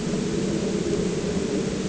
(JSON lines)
{"label": "anthrophony, boat engine", "recorder": "HydroMoth"}